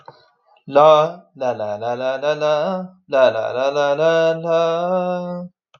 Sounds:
Sigh